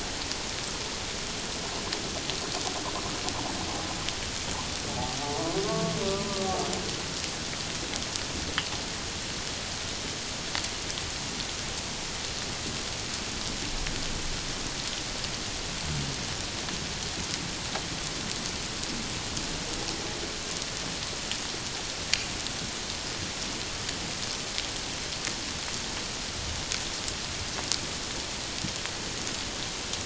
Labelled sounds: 5.6	6.4	humpback whale, 0.94 to 1.2 kHz

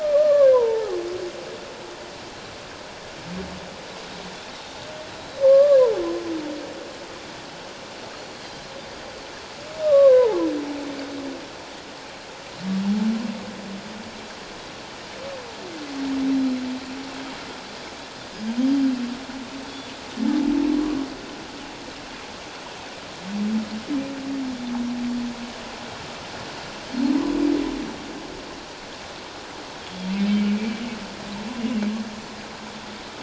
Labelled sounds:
0.0	0.9	humpback whale, 0.84 to 1.8 kHz
5.2	5.4	Pacific white-sided dolphin, 3.8 to 4.0 kHz
5.4	5.8	humpback whale, 1.0 to 1.2 kHz
8.1	8.4	Pacific white-sided dolphin, 4.2 to 4.4 kHz
9.8	10.4	humpback whale, 0.78 to 3.9 kHz
30.3	30.5	humpback whale, 3.0 to 3.2 kHz
30.6	30.8	Pacific white-sided dolphin, 2.2 to 2.4 kHz

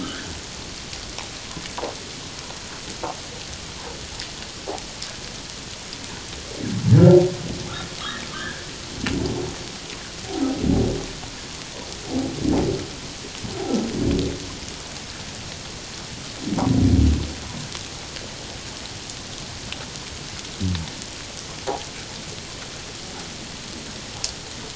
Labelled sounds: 0.0	0.4	humpback whale, 1.2 to 1.8 kHz
8.3	8.6	humpback whale, 1.4 to 1.8 kHz

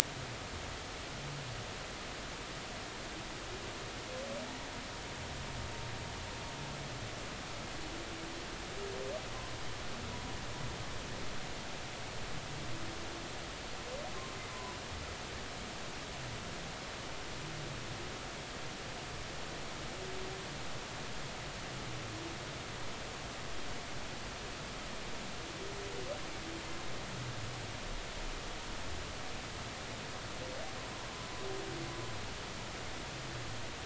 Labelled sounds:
14.5	14.8	humpback whale, 0.90 to 1.1 kHz

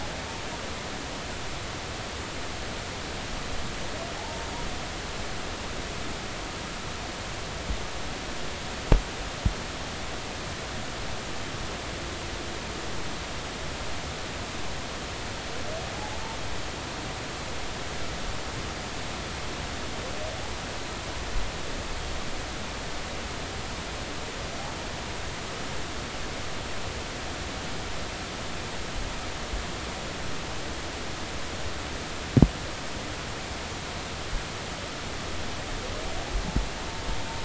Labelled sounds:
4.1	4.5	humpback whale, 0.80 to 0.96 kHz
15.9	16.2	humpback whale, 0.80 to 0.96 kHz

